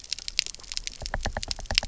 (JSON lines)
{"label": "biophony, knock", "recorder": "SoundTrap 300"}